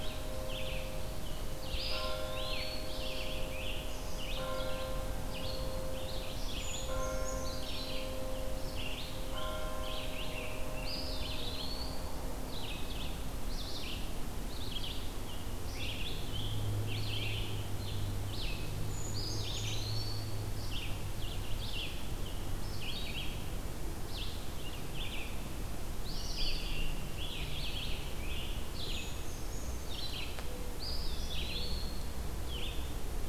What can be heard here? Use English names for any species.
Red-eyed Vireo, Eastern Wood-Pewee, Scarlet Tanager, Brown Creeper